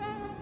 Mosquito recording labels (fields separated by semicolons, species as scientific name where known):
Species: Anopheles quadriannulatus; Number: one; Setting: insect culture